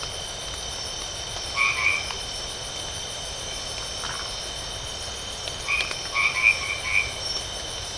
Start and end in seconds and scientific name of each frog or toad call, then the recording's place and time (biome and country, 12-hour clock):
1.3	2.2	Boana albomarginata
3.9	4.5	Phyllomedusa distincta
5.3	7.5	Boana albomarginata
Atlantic Forest, Brazil, 10:30pm